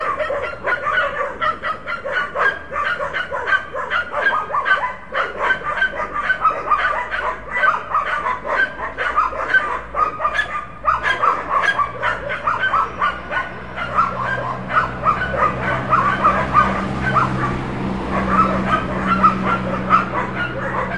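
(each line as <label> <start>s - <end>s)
Dogs bark and woof repeatedly on the street. 0.0s - 21.0s
A car passes by. 14.5s - 21.0s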